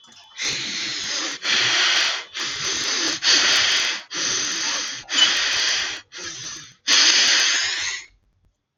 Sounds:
Sniff